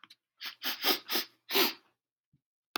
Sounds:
Sniff